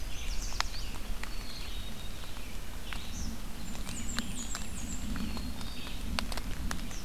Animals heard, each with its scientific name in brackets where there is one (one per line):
Eastern Kingbird (Tyrannus tyrannus)
Yellow Warbler (Setophaga petechia)
Black-capped Chickadee (Poecile atricapillus)
Red-eyed Vireo (Vireo olivaceus)
Blackburnian Warbler (Setophaga fusca)